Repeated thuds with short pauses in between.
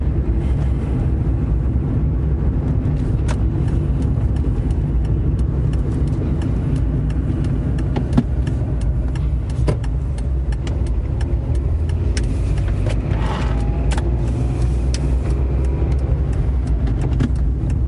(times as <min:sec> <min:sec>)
0:08.0 0:17.9